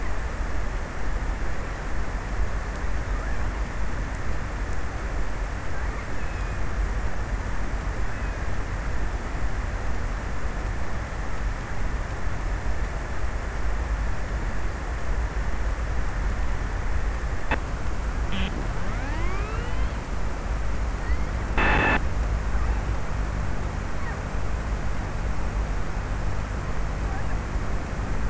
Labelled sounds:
5.5	6.8	killer whale, offshore, 0.79 to 3.1 kHz

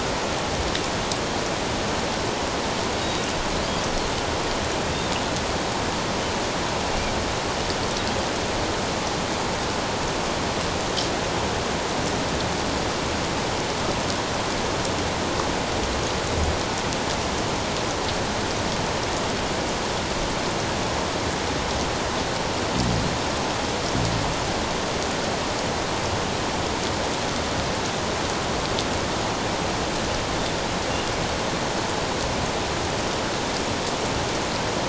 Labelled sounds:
3.0	3.2	Pacific white-sided dolphin, 3.7 to 3.8 kHz

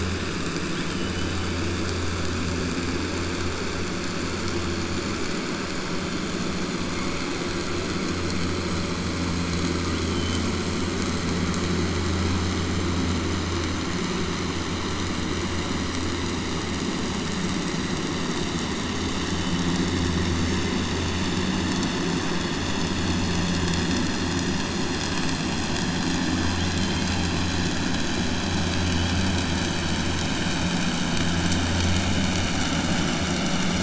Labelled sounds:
0.6	1.5	killer whale, southern resident, 2.9 to 3.9 kHz

